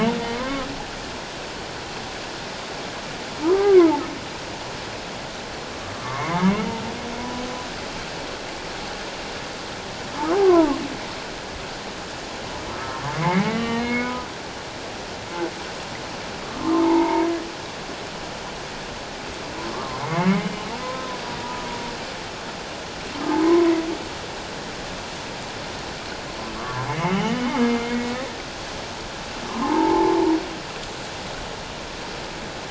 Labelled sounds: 0.4	0.7	humpback whale, 0.97 to 1.2 kHz
3.4	4.0	humpback whale, 0.81 to 1.7 kHz
6.0	6.7	humpback whale, 0.88 to 3.0 kHz
10.4	10.8	humpback whale, 0.81 to 1.4 kHz
13.2	14.3	humpback whale, 1.1 to 3.1 kHz
16.7	17.3	humpback whale, 0.81 to 2.3 kHz
19.7	20.4	humpback whale, 0.97 to 2.3 kHz
23.3	23.7	humpback whale, 0.81 to 1.1 kHz
26.9	28.1	humpback whale, 1.9 to 3.1 kHz
29.5	30.2	humpback whale, 0.78 to 1.2 kHz

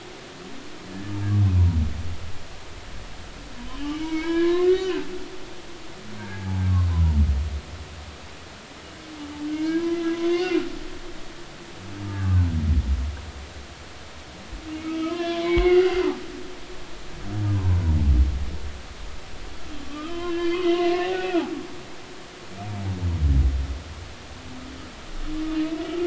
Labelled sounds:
3.7	5.1	humpback whale, 0.90 to 4.8 kHz
6.2	7.2	humpback whale, 0.80 to 1.7 kHz
9.5	10.7	humpback whale, 1.3 to 2.9 kHz
12.0	12.5	humpback whale, 0.99 to 1.2 kHz
14.8	16.0	humpback whale, 0.96 to 3.6 kHz
17.5	17.8	humpback whale, 0.86 to 1.1 kHz
19.8	21.4	humpback whale, 0.96 to 3.3 kHz

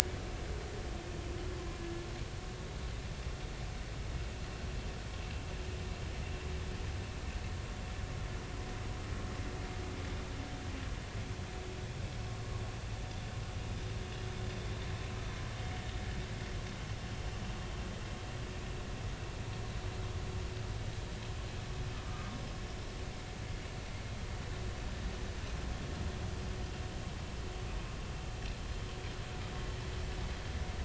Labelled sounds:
22.0	22.3	humpback whale, 1.2 to 1.3 kHz

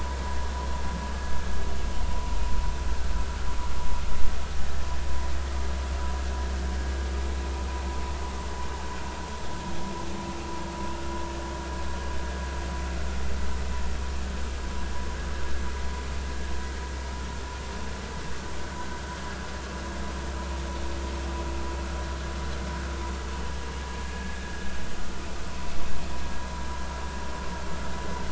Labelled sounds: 4.6	4.8	vessel noise, 1.7 to 1.9 kHz
24.0	24.4	vessel noise, 1.6 to 1.7 kHz

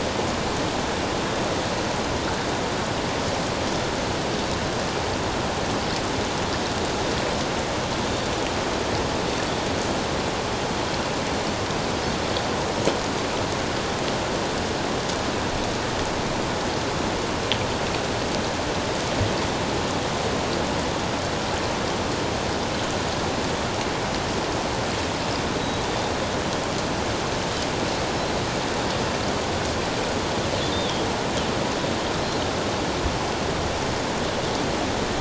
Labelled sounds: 30.7	31.1	Pacific white-sided dolphin, 3.2 to 3.7 kHz

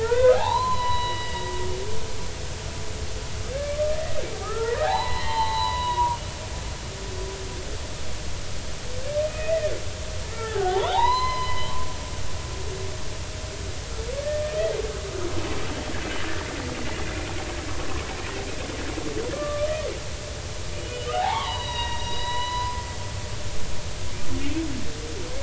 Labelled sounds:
0.0	2.5	humpback whale, 0.80 to 4.9 kHz
4.4	6.2	humpback whale, 0.80 to 4.2 kHz
9.2	9.7	humpback whale, 1.8 to 2.6 kHz
10.2	11.7	humpback whale, 0.80 to 6.1 kHz
19.3	19.7	humpback whale, 1.1 to 1.3 kHz
21.1	22.8	humpback whale, 0.80 to 5.8 kHz

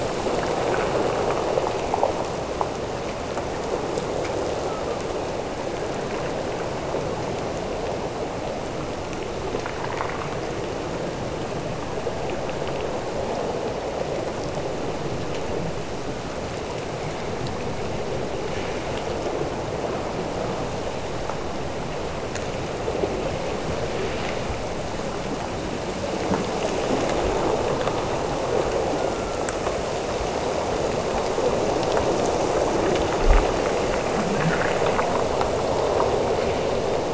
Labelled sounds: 28.9	30.1	killer whale, Bigg's (transient), Gulf of Alaska transient, 0.84 to 1.7 kHz

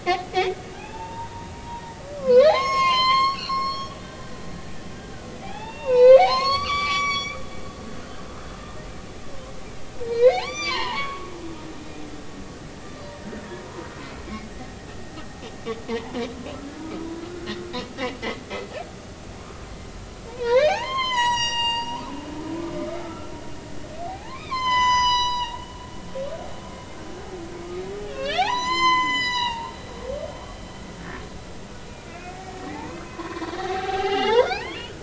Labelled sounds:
0.0	1.8	humpback whale, 0.80 to 2.9 kHz
2.2	4.0	humpback whale, 0.80 to 6.6 kHz
5.4	7.4	humpback whale, 0.80 to 7.0 kHz
10.0	11.3	humpback whale, 0.80 to 7.2 kHz
11.8	12.0	humpback whale, 2.4 to 2.5 kHz
12.7	13.0	humpback whale, 1.7 to 1.8 kHz
15.9	16.3	humpback whale, 0.80 to 1.1 kHz
20.3	22.0	humpback whale, 0.80 to 7.8 kHz
22.9	23.3	humpback whale, 1.2 to 1.4 kHz
24.1	25.6	humpback whale, 0.80 to 8.0 kHz
28.1	30.2	humpback whale, 0.80 to 8.0 kHz
31.9	32.4	humpback whale, 2.0 to 2.6 kHz
33.0	35.0	humpback whale, 0.80 to 4.3 kHz

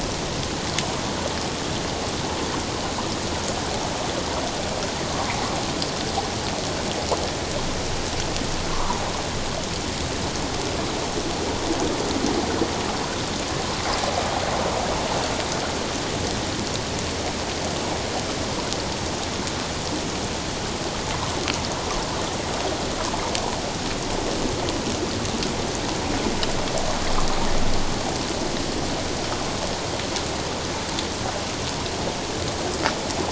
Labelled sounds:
5.1	5.3	water noise, 0.91 to 1.2 kHz

